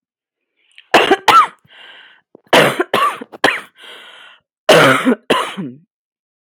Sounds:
Cough